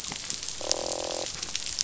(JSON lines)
{"label": "biophony, croak", "recorder": "SoundTrap 500"}